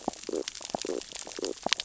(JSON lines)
{"label": "biophony, stridulation", "recorder": "SoundTrap 600 or HydroMoth"}